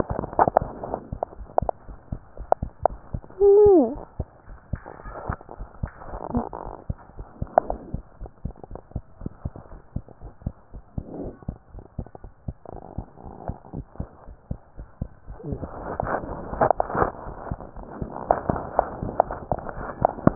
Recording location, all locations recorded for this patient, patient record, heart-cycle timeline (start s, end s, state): pulmonary valve (PV)
aortic valve (AV)+pulmonary valve (PV)+tricuspid valve (TV)
#Age: Child
#Sex: Female
#Height: 114.0 cm
#Weight: 26.2 kg
#Pregnancy status: False
#Murmur: Absent
#Murmur locations: nan
#Most audible location: nan
#Systolic murmur timing: nan
#Systolic murmur shape: nan
#Systolic murmur grading: nan
#Systolic murmur pitch: nan
#Systolic murmur quality: nan
#Diastolic murmur timing: nan
#Diastolic murmur shape: nan
#Diastolic murmur grading: nan
#Diastolic murmur pitch: nan
#Diastolic murmur quality: nan
#Outcome: Abnormal
#Campaign: 2015 screening campaign
0.00	7.92	unannotated
7.92	8.04	S2
8.04	8.20	diastole
8.20	8.32	S1
8.32	8.42	systole
8.42	8.56	S2
8.56	8.70	diastole
8.70	8.84	S1
8.84	8.94	systole
8.94	9.04	S2
9.04	9.22	diastole
9.22	9.34	S1
9.34	9.42	systole
9.42	9.54	S2
9.54	9.74	diastole
9.74	9.86	S1
9.86	9.94	systole
9.94	10.04	S2
10.04	10.24	diastole
10.24	10.36	S1
10.36	10.42	systole
10.42	10.58	S2
10.58	10.74	diastole
10.74	10.88	S1
10.88	10.96	systole
10.96	11.06	S2
11.06	11.24	diastole
11.24	11.38	S1
11.38	11.46	systole
11.46	11.60	S2
11.60	11.75	diastole
11.75	11.88	S1
11.88	11.96	systole
11.96	12.06	S2
12.06	12.22	diastole
12.22	12.32	S1
12.32	12.42	systole
12.42	12.56	S2
12.56	12.73	diastole
12.73	12.85	S1
12.85	12.96	systole
12.96	13.10	S2
13.10	13.28	diastole
13.28	13.39	S1
13.39	13.48	systole
13.48	13.58	S2
13.58	13.73	diastole
13.73	13.85	S1
13.85	13.97	systole
13.97	14.06	S2
14.06	14.26	diastole
14.26	14.36	S1
14.36	14.48	systole
14.48	14.62	S2
14.62	14.78	diastole
14.78	14.88	S1
14.88	14.96	systole
14.96	15.08	S2
15.08	15.28	diastole
15.28	20.35	unannotated